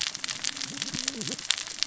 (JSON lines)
{"label": "biophony, cascading saw", "recorder": "SoundTrap 600 or HydroMoth"}